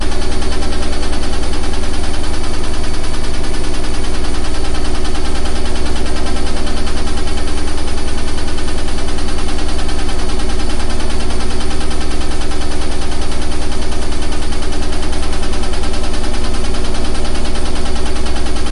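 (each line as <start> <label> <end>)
0.0 A washing machine makes a continuous loud and squeaky sound. 18.7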